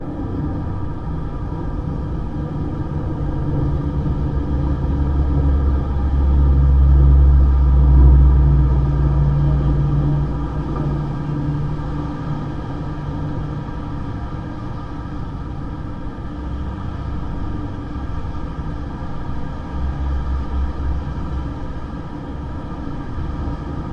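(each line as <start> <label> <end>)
0.0 A steady sound of wind passing through a chimney. 23.9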